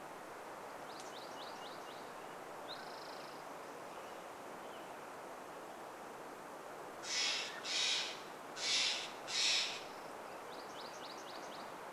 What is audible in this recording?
MacGillivray's Warbler song, Mountain Quail call, Spotted Towhee song, Northern Flicker call, Steller's Jay call